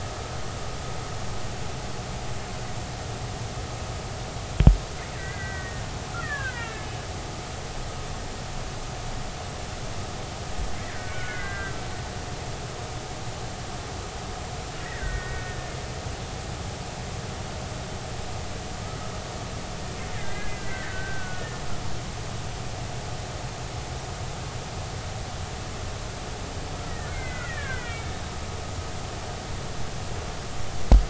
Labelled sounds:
5.1	6.9	killer whale, Bigg's (transient), 1.1 to 3.0 kHz
10.9	11.8	killer whale, Bigg's (transient), 1.3 to 2.2 kHz
14.8	15.7	killer whale, Bigg's (transient), 1.4 to 2.0 kHz
20.1	21.6	killer whale, Bigg's (transient), 1.4 to 2.1 kHz
26.9	28.1	killer whale, Bigg's (transient), 1.3 to 2.5 kHz

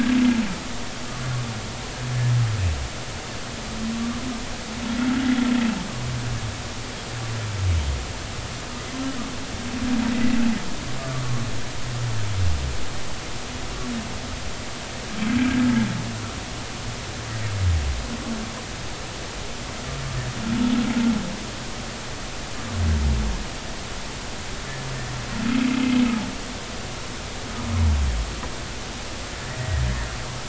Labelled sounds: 3.9	4.2	humpback whale, 1.1 to 1.2 kHz
11.0	11.2	humpback whale, 1.1 to 1.2 kHz

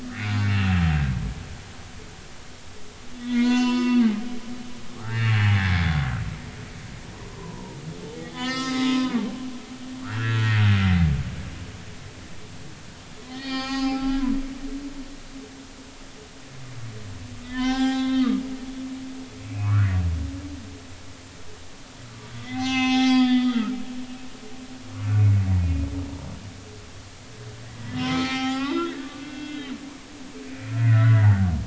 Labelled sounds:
0.0	0.5	humpback whale, 1.2 to 1.7 kHz
3.2	4.0	humpback whale, 0.93 to 7.0 kHz
4.7	5.9	humpback whale, 0.80 to 5.2 kHz
7.3	9.3	humpback whale, 0.80 to 7.5 kHz
10.0	11.1	humpback whale, 1.1 to 2.8 kHz
13.2	14.2	humpback whale, 0.80 to 6.5 kHz
17.4	18.4	humpback whale, 0.80 to 5.3 kHz
18.7	20.0	humpback whale, 0.90 to 7.1 kHz
22.4	23.7	humpback whale, 0.80 to 6.8 kHz
25.1	25.9	humpback whale, 2.1 to 2.5 kHz
27.8	29.7	humpback whale, 0.80 to 6.1 kHz
30.5	31.3	humpback whale, 1.3 to 2.5 kHz

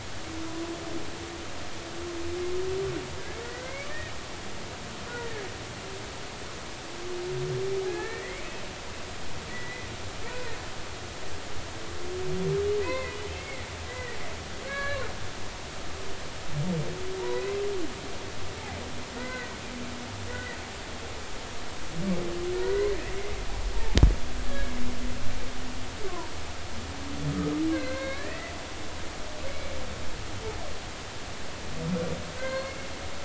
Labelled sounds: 3.4	3.9	humpback whale, 1.8 to 2.4 kHz
5.1	5.5	humpback whale, 1.6 to 2.0 kHz
7.9	8.4	humpback whale, 1.6 to 2.7 kHz
9.5	10.5	humpback whale, 1.9 to 2.6 kHz
12.8	14.2	humpback whale, 0.93 to 2.7 kHz
14.6	15.0	humpback whale, 1.5 to 2.3 kHz
17.2	17.5	humpback whale, 0.86 to 1.1 kHz
19.1	19.6	humpback whale, 1.4 to 2.1 kHz
20.3	20.6	humpback whale, 1.8 to 2.0 kHz
22.6	22.9	humpback whale, 0.90 to 2.2 kHz
23.5	24.7	humpback whale, 0.80 to 1.8 kHz
26.1	26.3	humpback whale, 0.90 to 1.2 kHz
27.7	28.5	humpback whale, 0.99 to 4.4 kHz
29.5	29.7	humpback whale, 2.1 to 2.3 kHz
32.4	32.9	humpback whale, 0.96 to 4.4 kHz

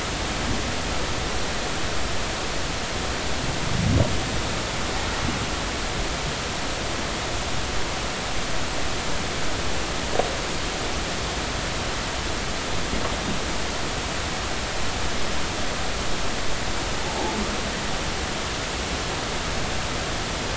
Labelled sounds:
17.0	17.4	humpback whale, 0.80 to 0.96 kHz

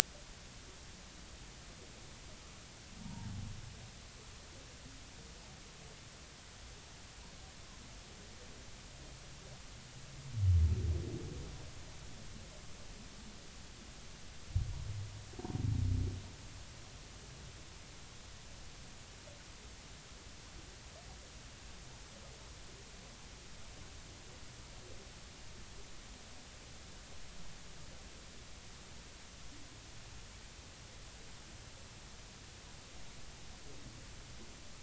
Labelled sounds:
4.0	4.3	humpback whale, 0.80 to 0.99 kHz

